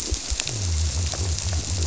{"label": "biophony", "recorder": "SoundTrap 300"}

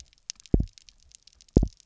{"label": "biophony, double pulse", "recorder": "SoundTrap 300"}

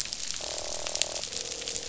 {"label": "biophony, croak", "recorder": "SoundTrap 500"}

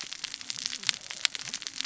{"label": "biophony, cascading saw", "recorder": "SoundTrap 600 or HydroMoth"}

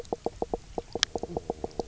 {"label": "biophony, knock croak", "recorder": "SoundTrap 300"}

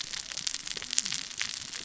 {"label": "biophony, cascading saw", "recorder": "SoundTrap 600 or HydroMoth"}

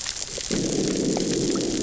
{"label": "biophony, growl", "recorder": "SoundTrap 600 or HydroMoth"}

